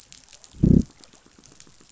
{"label": "biophony, growl", "recorder": "SoundTrap 500"}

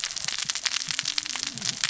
{"label": "biophony, cascading saw", "recorder": "SoundTrap 600 or HydroMoth"}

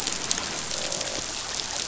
{"label": "biophony, croak", "recorder": "SoundTrap 500"}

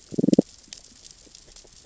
{"label": "biophony, damselfish", "recorder": "SoundTrap 600 or HydroMoth"}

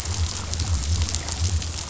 {"label": "biophony", "recorder": "SoundTrap 500"}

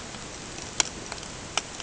{"label": "ambient", "recorder": "HydroMoth"}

